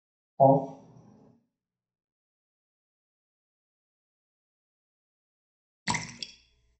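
At 0.4 seconds, a voice says "Off." After that, at 5.9 seconds, splashing is heard.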